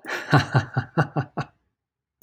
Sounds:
Laughter